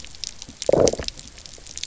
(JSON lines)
{"label": "biophony, low growl", "recorder": "SoundTrap 300"}